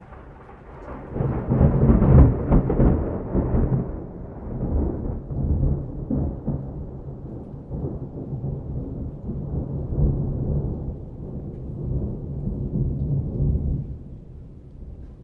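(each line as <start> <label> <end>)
1.1 Thunder rumbles. 4.1
3.6 Thunder gradually fades away. 13.7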